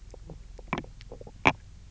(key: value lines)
label: biophony, knock croak
recorder: SoundTrap 300